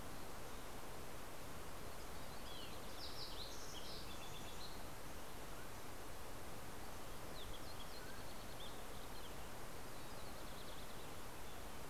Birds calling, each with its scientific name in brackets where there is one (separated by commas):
Fox Sparrow (Passerella iliaca), Mountain Quail (Oreortyx pictus)